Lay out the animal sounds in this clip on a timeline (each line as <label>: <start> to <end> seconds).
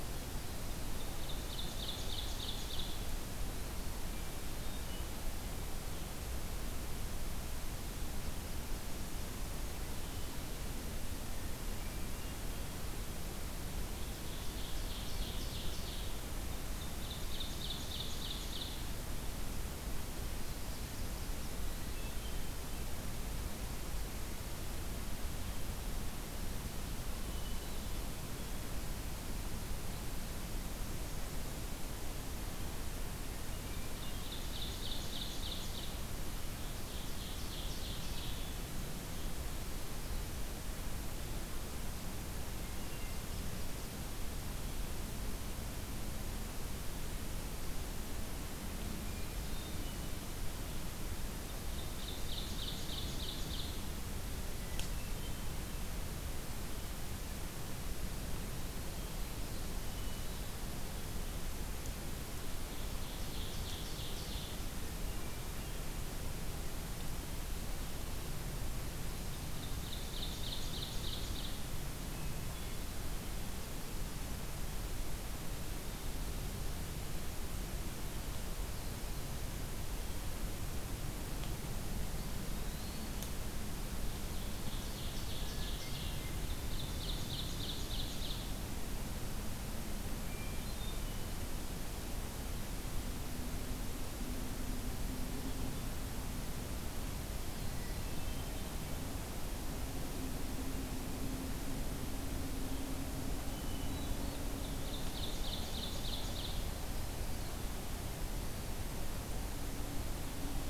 Ovenbird (Seiurus aurocapilla): 0.6 to 2.9 seconds
Eastern Wood-Pewee (Contopus virens): 2.9 to 4.0 seconds
Hermit Thrush (Catharus guttatus): 4.0 to 5.2 seconds
Hermit Thrush (Catharus guttatus): 11.7 to 12.9 seconds
Ovenbird (Seiurus aurocapilla): 13.9 to 16.2 seconds
Ovenbird (Seiurus aurocapilla): 16.7 to 18.9 seconds
Hermit Thrush (Catharus guttatus): 21.7 to 22.8 seconds
Hermit Thrush (Catharus guttatus): 27.1 to 28.5 seconds
Hermit Thrush (Catharus guttatus): 33.2 to 34.5 seconds
Ovenbird (Seiurus aurocapilla): 33.9 to 35.9 seconds
Ovenbird (Seiurus aurocapilla): 36.4 to 38.4 seconds
Hermit Thrush (Catharus guttatus): 42.5 to 43.3 seconds
Hermit Thrush (Catharus guttatus): 49.0 to 50.2 seconds
Ovenbird (Seiurus aurocapilla): 51.6 to 53.8 seconds
Hermit Thrush (Catharus guttatus): 54.5 to 55.5 seconds
Hermit Thrush (Catharus guttatus): 58.6 to 60.8 seconds
Ovenbird (Seiurus aurocapilla): 62.6 to 64.6 seconds
Hermit Thrush (Catharus guttatus): 64.8 to 65.9 seconds
Ovenbird (Seiurus aurocapilla): 69.5 to 71.7 seconds
Hermit Thrush (Catharus guttatus): 71.9 to 73.2 seconds
Eastern Wood-Pewee (Contopus virens): 82.0 to 83.2 seconds
Ovenbird (Seiurus aurocapilla): 84.2 to 88.6 seconds
Hermit Thrush (Catharus guttatus): 85.4 to 86.5 seconds
Hermit Thrush (Catharus guttatus): 90.2 to 91.3 seconds
Hermit Thrush (Catharus guttatus): 97.6 to 98.9 seconds
Hermit Thrush (Catharus guttatus): 103.4 to 104.5 seconds
Ovenbird (Seiurus aurocapilla): 104.5 to 106.8 seconds